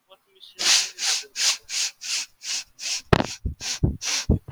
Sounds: Sniff